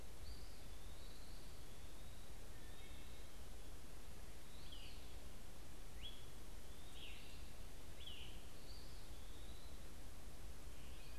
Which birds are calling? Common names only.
Eastern Wood-Pewee, Scarlet Tanager